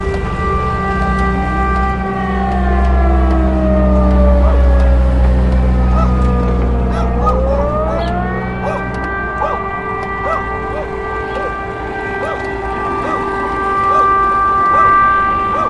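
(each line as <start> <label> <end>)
0.0 A loud siren wails repeatedly. 15.7
0.0 An irregular clicking sound continues. 15.7
0.0 Cars and other vehicles driving by outdoors. 15.7
4.4 A dog barks in the distance with an echo. 4.9
5.9 A dog barks repeatedly in the distance with an echo. 15.7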